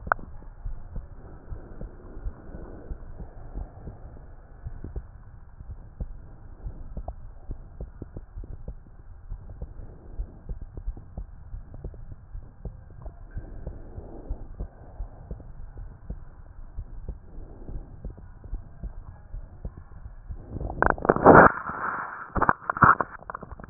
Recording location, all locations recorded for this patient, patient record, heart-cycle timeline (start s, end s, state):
aortic valve (AV)
aortic valve (AV)+pulmonary valve (PV)+tricuspid valve (TV)
#Age: Child
#Sex: Female
#Height: 139.0 cm
#Weight: 57.6 kg
#Pregnancy status: False
#Murmur: Absent
#Murmur locations: nan
#Most audible location: nan
#Systolic murmur timing: nan
#Systolic murmur shape: nan
#Systolic murmur grading: nan
#Systolic murmur pitch: nan
#Systolic murmur quality: nan
#Diastolic murmur timing: nan
#Diastolic murmur shape: nan
#Diastolic murmur grading: nan
#Diastolic murmur pitch: nan
#Diastolic murmur quality: nan
#Outcome: Abnormal
#Campaign: 2015 screening campaign
0.00	1.01	unannotated
1.01	1.48	diastole
1.48	1.64	S1
1.64	1.80	systole
1.80	1.94	S2
1.94	2.16	diastole
2.16	2.34	S1
2.34	2.50	systole
2.50	2.66	S2
2.66	2.84	diastole
2.84	2.98	S1
2.98	3.18	systole
3.18	3.30	S2
3.30	3.50	diastole
3.50	3.68	S1
3.68	3.82	systole
3.82	3.94	S2
3.94	4.63	diastole
4.63	4.78	S1
4.78	4.94	systole
4.94	5.08	S2
5.08	5.65	diastole
5.65	5.80	S1
5.80	5.96	systole
5.96	6.10	S2
6.10	6.62	diastole
6.62	6.78	S1
6.78	6.90	systole
6.90	7.06	S2
7.06	7.47	diastole
7.47	7.60	S1
7.60	7.78	systole
7.78	7.89	S2
7.89	8.33	diastole
8.33	8.48	S1
8.48	8.64	systole
8.64	8.80	S2
8.80	9.28	diastole
9.28	9.40	S1
9.40	9.56	systole
9.56	9.71	S2
9.71	10.14	diastole
10.14	10.28	S1
10.28	10.46	systole
10.46	10.60	S2
10.60	10.82	diastole
10.82	11.00	S1
11.00	11.16	systole
11.16	11.30	S2
11.30	11.50	diastole
11.50	11.64	S1
11.64	11.82	systole
11.82	11.96	S2
11.96	12.31	diastole
12.31	12.44	S1
12.44	12.63	systole
12.63	12.74	S2
12.74	13.03	diastole
13.03	13.14	S1
13.14	13.30	systole
13.30	13.46	S2
13.46	13.64	diastole
13.64	23.70	unannotated